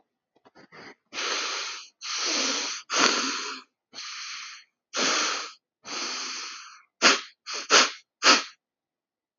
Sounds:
Sniff